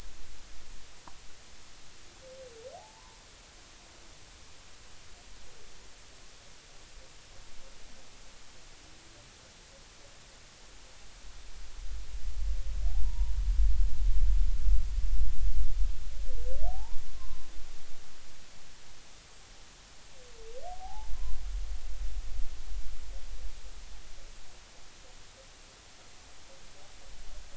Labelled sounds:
2.7	3.2	humpback whale, 0.80 to 1.1 kHz
12.9	13.3	humpback whale, 0.80 to 1.1 kHz
16.7	17.5	humpback whale, 0.80 to 1.1 kHz
20.7	21.1	humpback whale, 0.80 to 0.96 kHz

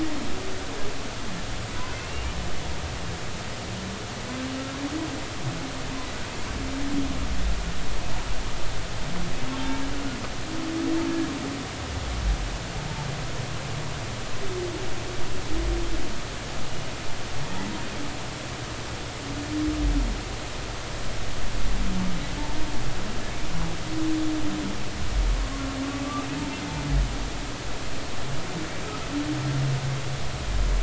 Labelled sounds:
1.9	2.3	humpback whale, 2.6 to 2.9 kHz
16.7	16.9	humpback whale, 2.8 to 2.9 kHz

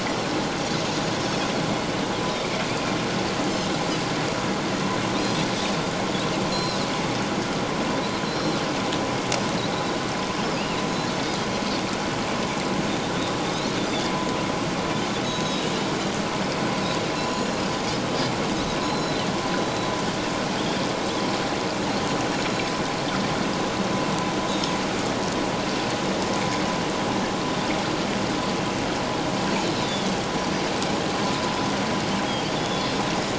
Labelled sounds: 2.2	2.5	Pacific white-sided dolphin, 3.5 to 4.0 kHz
5.2	5.5	Pacific white-sided dolphin, 3.3 to 3.5 kHz
6.5	6.8	Pacific white-sided dolphin, 3.8 to 4.2 kHz
8.3	8.6	Pacific white-sided dolphin, 3.8 to 4.2 kHz
15.2	15.7	Pacific white-sided dolphin, 3.7 to 6.7 kHz
17.2	17.5	Pacific white-sided dolphin, 6.8 to 7.0 kHz
18.8	19.9	Pacific white-sided dolphin, 3.8 to 4.2 kHz
22.5	22.7	Pacific white-sided dolphin, 6.4 to 6.8 kHz
24.5	24.8	Pacific white-sided dolphin, 6.4 to 6.6 kHz
29.8	30.1	Pacific white-sided dolphin, 3.3 to 3.6 kHz
32.5	32.9	Pacific white-sided dolphin, 3.3 to 3.6 kHz

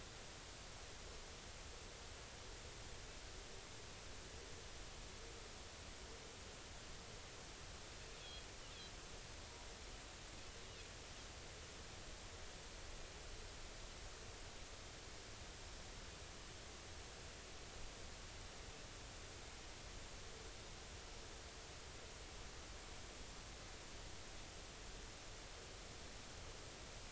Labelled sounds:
8.2	8.5	Pacific white-sided dolphin, 3.2 to 3.4 kHz

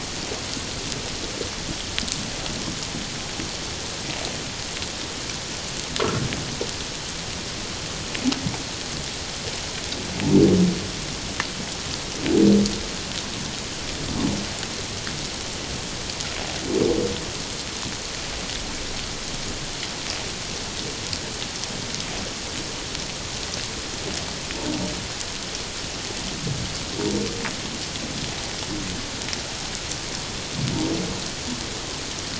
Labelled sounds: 6.0	6.3	humpback whale, 1.3 to 1.4 kHz

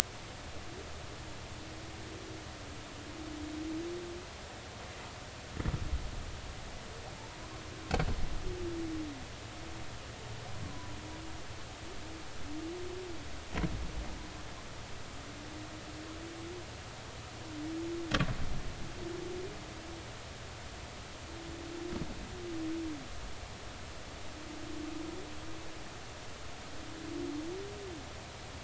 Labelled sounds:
10.6	11.0	humpback whale, 0.96 to 1.1 kHz

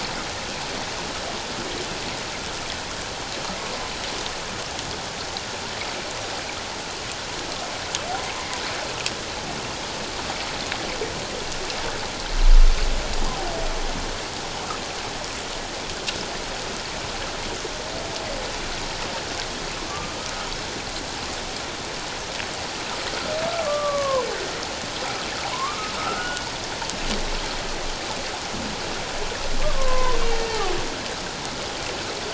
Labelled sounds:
19.9	20.2	humpback whale, 1.1 to 1.2 kHz
23.6	24.3	humpback whale, 0.94 to 1.2 kHz
25.5	26.5	humpback whale, 0.91 to 2.9 kHz
29.6	30.2	humpback whale, 0.91 to 1.2 kHz

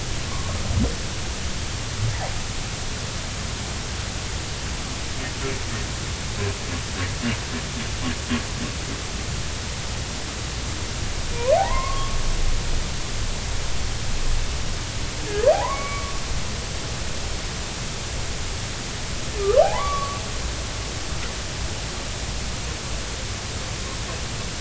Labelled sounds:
0.3	0.6	humpback whale, 0.96 to 1.2 kHz
11.5	12.2	humpback whale, 0.80 to 1.2 kHz
15.5	16.1	humpback whale, 0.80 to 2.3 kHz
19.6	20.2	humpback whale, 0.80 to 3.5 kHz

